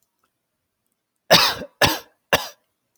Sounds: Cough